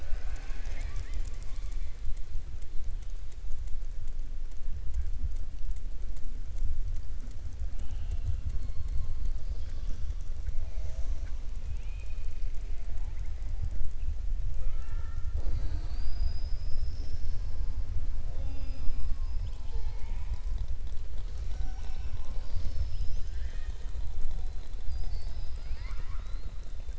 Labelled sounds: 11.6	12.3	killer whale, southern resident, 2.3 to 3.8 kHz
24.8	26.5	killer whale, southern resident, 0.94 to 5.3 kHz

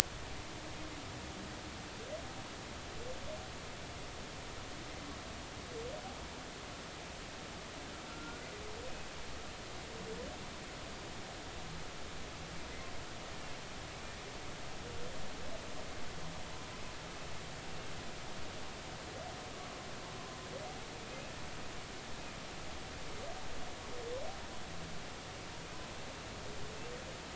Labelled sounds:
8.1	8.5	humpback whale, 1.3 to 1.5 kHz

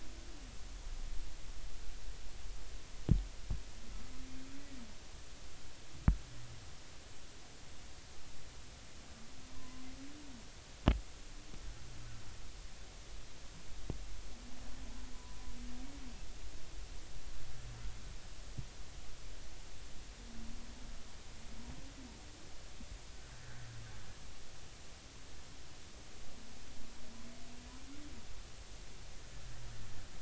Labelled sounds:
9.5	9.9	humpback whale, 0.96 to 1.2 kHz

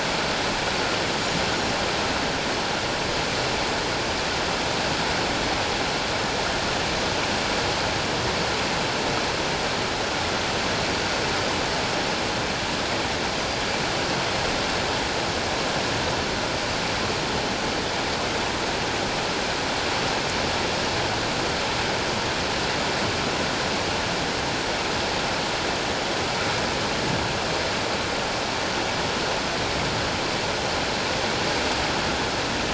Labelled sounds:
13.4	13.6	Pacific white-sided dolphin, 4.7 to 4.9 kHz

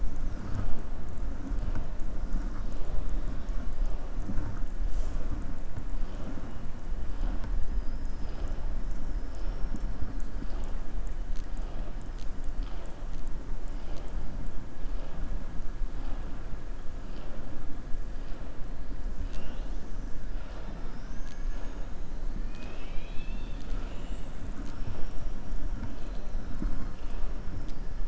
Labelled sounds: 22.4	24.2	killer whale, southern resident, 1.3 to 6.4 kHz

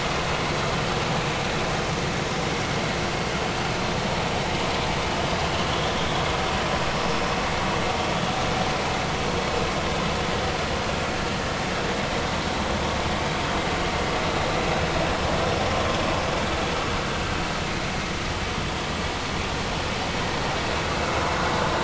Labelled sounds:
11.3	11.6	vessel noise, 1.7 to 1.9 kHz

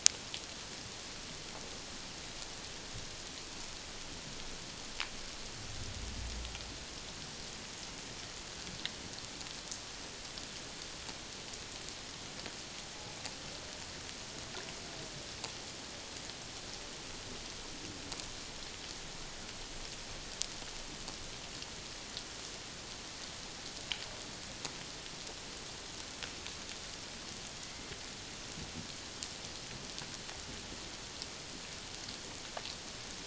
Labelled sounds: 27.6	27.9	humpback whale, 2.0 to 2.1 kHz

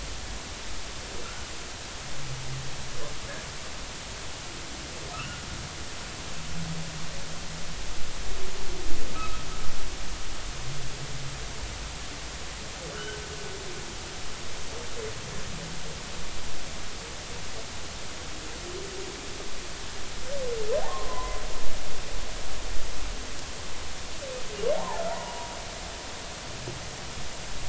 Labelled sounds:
5.1	5.4	humpback whale, 1.2 to 3.0 kHz
9.2	9.4	humpback whale, 1.2 to 1.4 kHz
12.9	13.2	humpback whale, 1.3 to 1.6 kHz
20.8	21.4	humpback whale, 0.80 to 1.2 kHz
24.7	25.5	humpback whale, 0.80 to 1.1 kHz

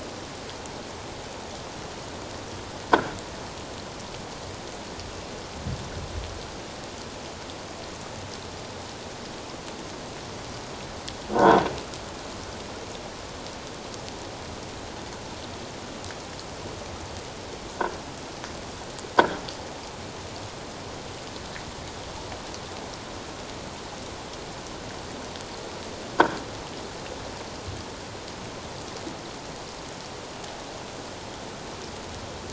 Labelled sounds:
2.9	3.2	croaking sound likely from a nearby submerged object, 1.2 to 1.7 kHz
11.3	11.6	croaking sound likely from a nearby submerged object, 1.3 to 1.6 kHz

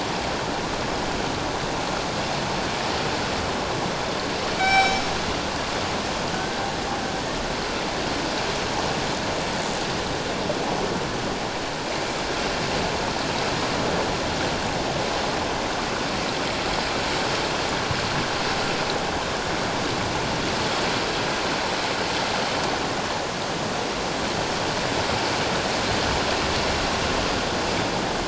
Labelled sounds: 4.6	5.0	killer whale, northern resident, G clan, 0.78 to 5.5 kHz

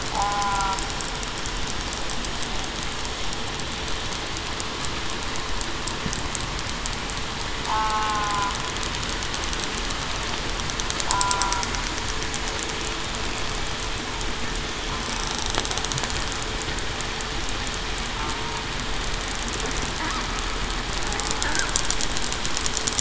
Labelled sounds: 0.1	0.6	killer whale, southern resident, 0.80 to 1.0 kHz
7.7	8.3	killer whale, southern resident, 0.80 to 1.3 kHz
11.1	11.6	killer whale, southern resident, 0.84 to 1.4 kHz

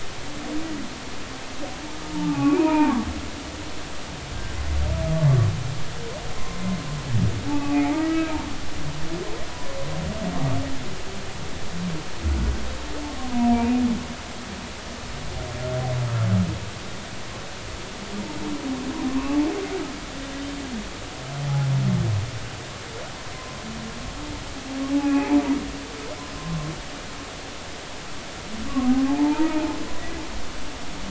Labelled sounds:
2.1	3.0	humpback whale, 0.80 to 2.7 kHz
7.4	8.4	humpback whale, 0.80 to 2.7 kHz
13.2	13.7	humpback whale, 0.90 to 1.1 kHz
19.1	19.4	humpback whale, 0.93 to 1.2 kHz
24.9	25.3	humpback whale, 2.4 to 2.7 kHz
26.1	26.4	humpback whale, 0.80 to 1.0 kHz
28.7	29.8	humpback whale, 0.80 to 1.2 kHz

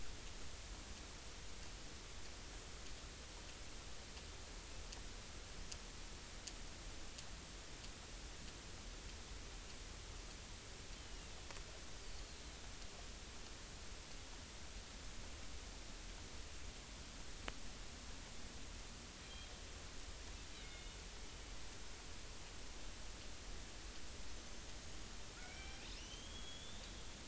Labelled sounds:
11.0	12.4	killer whale, northern resident, 2.6 to 4.8 kHz
19.2	19.5	killer whale, northern resident, 3.1 to 4.1 kHz
20.6	21.0	killer whale, northern resident, 2.1 to 3.7 kHz
24.4	24.7	killer whale, northern resident, 6.1 to 6.4 kHz
25.4	26.9	killer whale, northern resident, 1.3 to 6.4 kHz

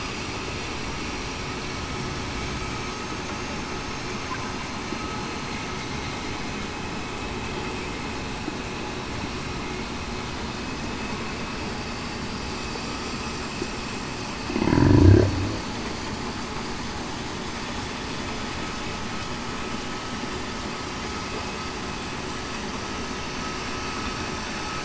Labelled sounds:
14.7	15.1	humpback whale, 0.28 to 0.35 kHz

